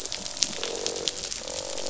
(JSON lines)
{"label": "biophony, croak", "recorder": "SoundTrap 500"}